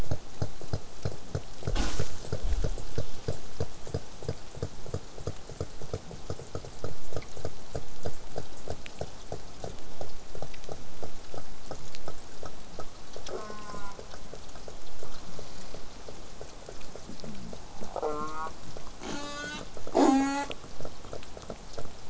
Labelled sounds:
13.3	14.0	killer whale, southern resident, J pod, call S04, 0.27 to 8.0 kHz
17.9	18.5	killer whale, southern resident, J pod, call S04, 0.08 to 2.7 kHz
19.0	19.6	killer whale, southern resident, J pod, call S04, 0.08 to 8.0 kHz
19.9	20.5	killer whale, southern resident, J pod, call S04, 0.12 to 8.0 kHz

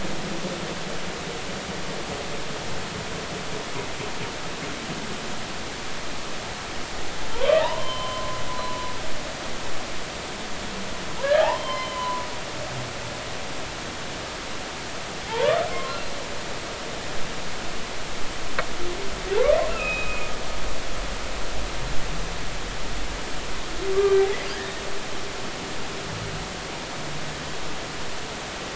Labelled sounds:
7.3	8.8	humpback whale, 0.83 to 3.4 kHz
11.2	12.2	humpback whale, 0.80 to 3.2 kHz
15.3	16.1	humpback whale, 0.80 to 4.2 kHz
19.7	20.3	humpback whale, 2.4 to 2.8 kHz
24.0	24.3	humpback whale, 1.5 to 2.4 kHz
24.9	25.2	humpback whale, 1.1 to 1.2 kHz

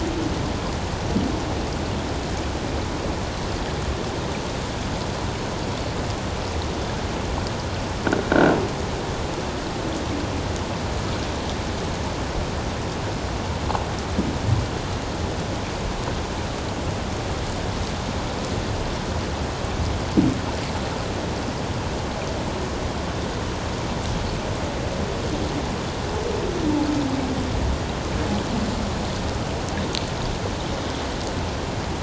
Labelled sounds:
8.3	8.6	croaking sound likely from a nearby submerged object, 1.4 to 1.6 kHz

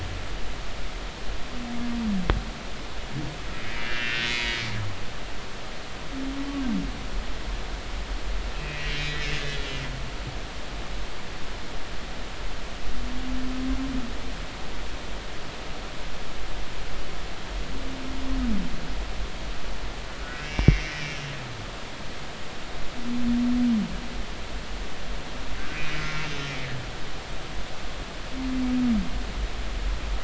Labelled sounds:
3.7	4.6	humpback whale, 1.8 to 4.0 kHz
8.5	9.4	humpback whale, 1.9 to 2.8 kHz
20.2	21.2	humpback whale, 1.4 to 2.8 kHz
25.7	26.0	humpback whale, 2.2 to 2.5 kHz

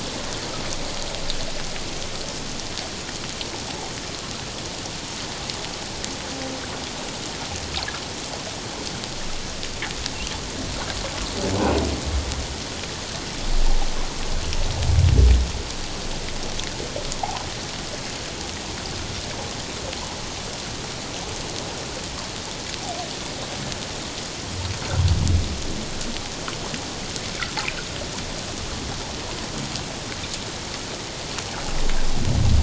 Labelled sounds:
17.2	17.4	humpback whale, 0.78 to 1.1 kHz

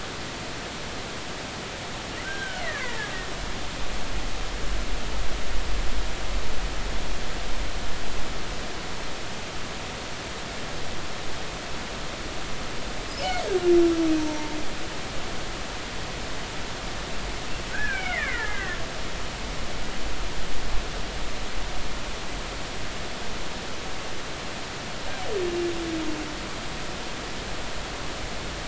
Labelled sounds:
2.2	2.9	killer whale, Bigg's (transient), 1.4 to 3.2 kHz
14.2	14.6	killer whale, Bigg's (transient), 0.86 to 0.96 kHz
17.7	18.8	killer whale, Bigg's (transient), 1.3 to 2.6 kHz

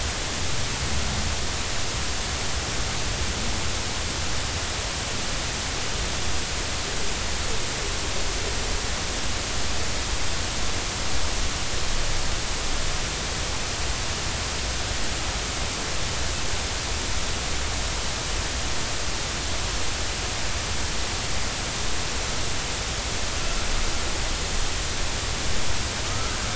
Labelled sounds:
26.1	26.4	humpback whale, 1.2 to 1.4 kHz

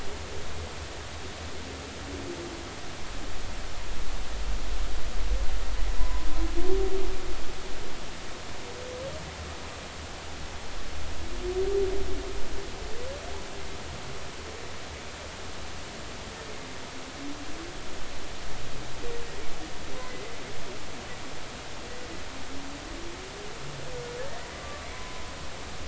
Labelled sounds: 6.0	6.3	humpback whale, 0.93 to 1.1 kHz
20.0	20.2	humpback whale, 1.95 to 2.05 kHz
24.6	25.2	humpback whale, 0.96 to 1.2 kHz

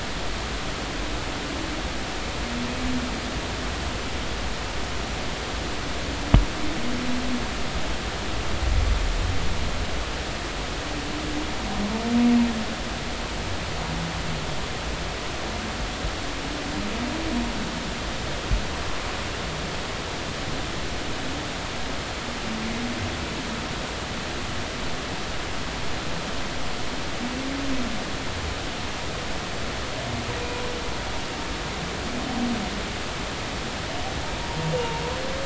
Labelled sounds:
34.8	35.0	humpback whale, 0.86 to 0.96 kHz

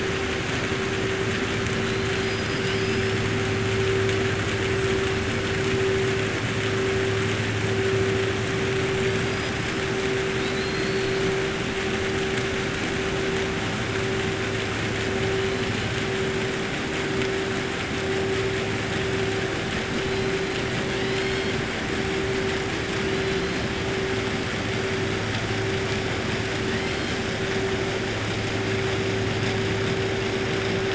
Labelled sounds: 2.1	3.2	killer whale, 2.7 to 5.6 kHz
9.2	9.5	killer whale, 4.7 to 5.7 kHz
10.3	11.2	killer whale, 3.7 to 4.8 kHz
20.9	21.5	killer whale, 2.0 to 5.3 kHz
23.1	23.6	killer whale, 3.1 to 4.7 kHz

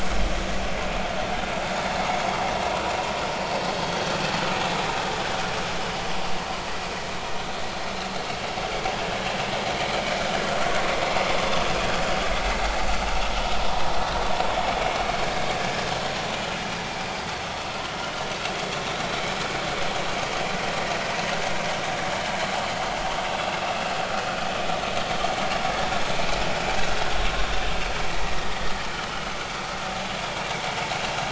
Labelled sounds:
4.2	4.5	vessel noise, 4.3 to 4.4 kHz
28.1	29.3	vessel noise, 1.8 to 3.1 kHz

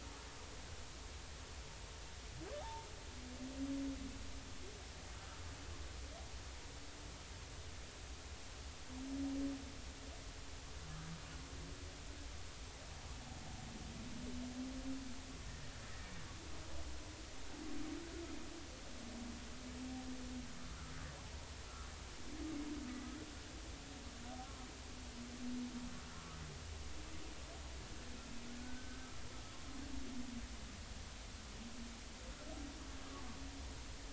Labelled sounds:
2.6	2.9	humpback whale, 0.80 to 0.96 kHz
21.7	21.9	humpback whale, 1.2 to 1.4 kHz
28.6	29.1	humpback whale, 1.4 to 1.6 kHz

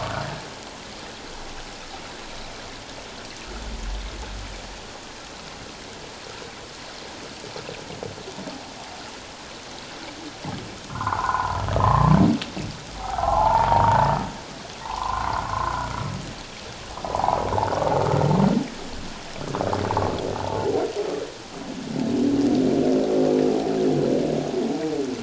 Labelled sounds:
10.9	12.2	humpback whale, 0.78 to 1.6 kHz
13.0	14.1	humpback whale, 0.78 to 1.5 kHz
14.8	15.7	humpback whale, 0.78 to 1.5 kHz
17.1	17.4	humpback whale, 0.78 to 1.1 kHz

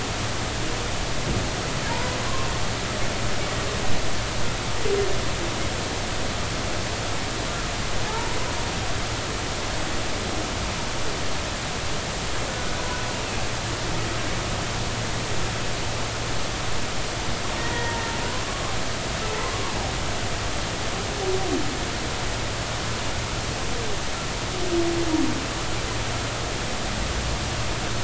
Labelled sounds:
1.9	2.2	humpback whale, 0.86 to 1.1 kHz
8.1	8.4	humpback whale, 0.83 to 1.0 kHz
17.6	18.0	humpback whale, 0.86 to 2.0 kHz

